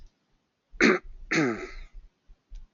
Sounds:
Throat clearing